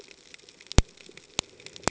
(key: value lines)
label: ambient
recorder: HydroMoth